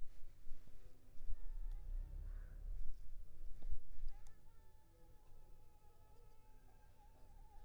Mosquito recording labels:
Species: Culex pipiens complex; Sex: female; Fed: unfed; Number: one; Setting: cup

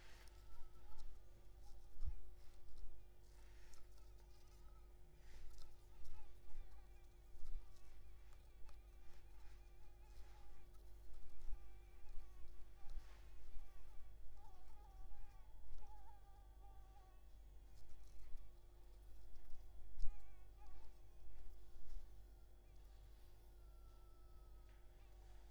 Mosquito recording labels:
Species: Anopheles maculipalpis; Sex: female; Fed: unfed; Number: one; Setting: cup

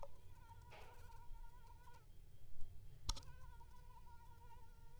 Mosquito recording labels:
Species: Anopheles gambiae s.l.; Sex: female; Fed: unfed; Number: one; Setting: cup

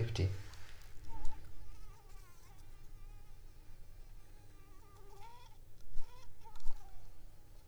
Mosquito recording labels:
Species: Anopheles arabiensis; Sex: female; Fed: unfed; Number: one; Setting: cup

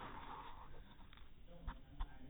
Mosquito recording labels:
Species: no mosquito; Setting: cup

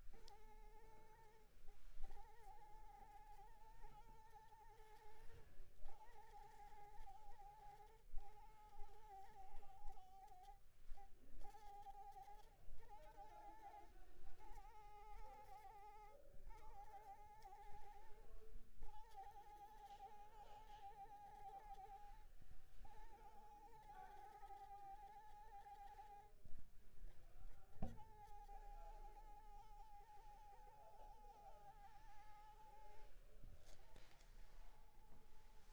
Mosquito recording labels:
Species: Anopheles arabiensis; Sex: female; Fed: unfed; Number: one; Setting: cup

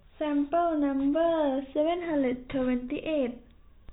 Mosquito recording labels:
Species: no mosquito; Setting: cup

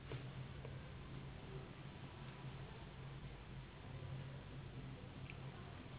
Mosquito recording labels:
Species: Anopheles gambiae s.s.; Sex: female; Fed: unfed; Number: one; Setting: insect culture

